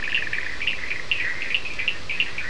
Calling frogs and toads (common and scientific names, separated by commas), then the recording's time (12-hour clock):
Bischoff's tree frog (Boana bischoffi), Cochran's lime tree frog (Sphaenorhynchus surdus)
3:30am